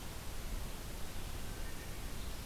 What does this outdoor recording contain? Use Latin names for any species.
forest ambience